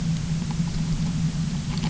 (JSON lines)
{"label": "anthrophony, boat engine", "recorder": "SoundTrap 300"}